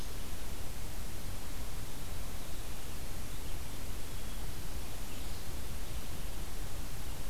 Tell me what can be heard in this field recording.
forest ambience